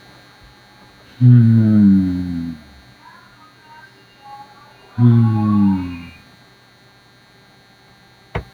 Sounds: Sigh